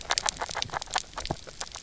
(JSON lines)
{"label": "biophony, grazing", "recorder": "SoundTrap 300"}